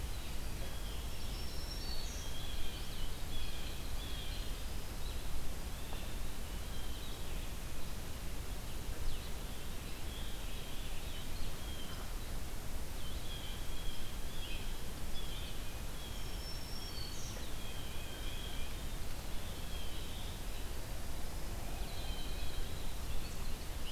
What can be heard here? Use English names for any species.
Red-eyed Vireo, Black-throated Green Warbler, Blue Jay, Winter Wren